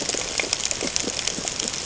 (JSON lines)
{"label": "ambient", "recorder": "HydroMoth"}